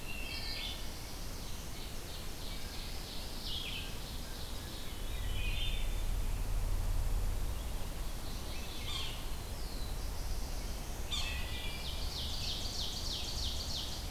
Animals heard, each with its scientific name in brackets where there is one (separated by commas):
Ovenbird (Seiurus aurocapilla), Yellow-bellied Sapsucker (Sphyrapicus varius), Black-throated Blue Warbler (Setophaga caerulescens), Wood Thrush (Hylocichla mustelina), Veery (Catharus fuscescens), Red-eyed Vireo (Vireo olivaceus)